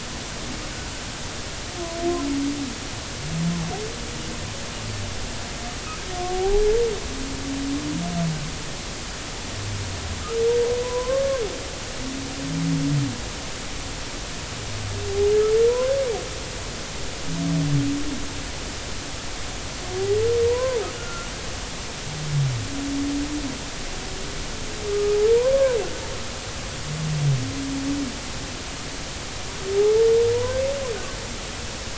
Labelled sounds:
6.3	6.6	humpback whale, 0.80 to 0.90 kHz
10.8	11.4	humpback whale, 0.93 to 1.7 kHz
20.5	21.3	humpback whale, 0.90 to 1.5 kHz
24.9	25.2	humpback whale, 1.2 to 1.3 kHz
30.3	30.6	humpback whale, 0.93 to 1.1 kHz

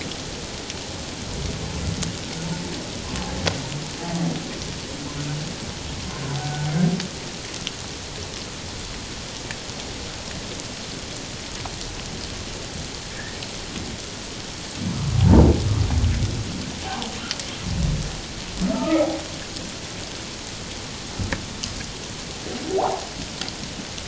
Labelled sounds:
6.4	6.7	humpback whale, 1.4 to 1.6 kHz
13.1	13.4	humpback whale, 1.6 to 1.9 kHz
15.1	15.5	humpback whale, 0.78 to 1.0 kHz
18.7	19.1	humpback whale, 1.2 to 1.4 kHz
22.7	23.0	humpback whale, 0.78 to 1.4 kHz

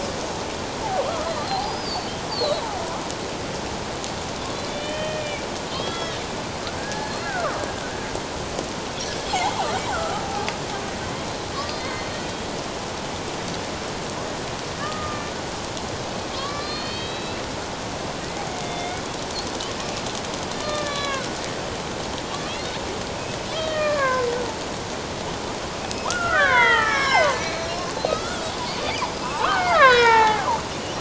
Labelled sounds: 1.1	2.7	killer whale, Bigg's (transient), 0.78 to 5.2 kHz
4.7	6.2	killer whale, Bigg's (transient), 1.2 to 3.7 kHz
6.8	7.6	killer whale, Bigg's (transient), 1.0 to 4.3 kHz
9.3	10.2	killer whale, Bigg's (transient), 1.2 to 2.3 kHz
11.5	12.5	killer whale, Bigg's (transient), 1.0 to 4.4 kHz
14.8	15.2	killer whale, Bigg's (transient), 1.1 to 1.3 kHz
16.3	17.4	killer whale, Bigg's (transient), 1.0 to 4.6 kHz
18.6	19.0	killer whale, Bigg's (transient), 2.1 to 3.7 kHz
20.6	21.4	killer whale, Bigg's (transient), 1.0 to 3.5 kHz
23.5	24.3	killer whale, Bigg's (transient), 0.97 to 3.3 kHz
25.8	30.5	killer whale, Bigg's (transient), 0.78 to 5.4 kHz

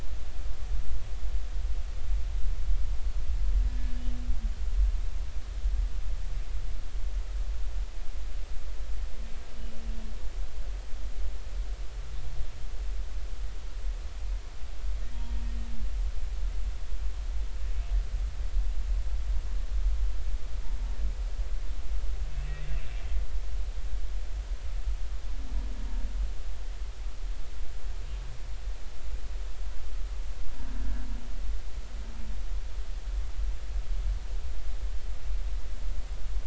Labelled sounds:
3.7	3.9	humpback whale, 1.7 to 1.8 kHz
22.3	22.7	humpback whale, 2.5 to 2.7 kHz

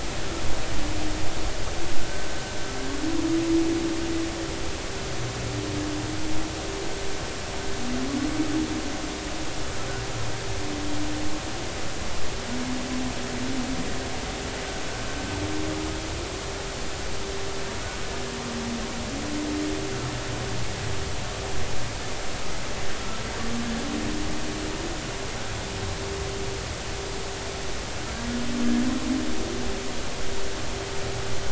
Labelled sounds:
2.0	2.2	humpback whale, 1.5 to 1.6 kHz

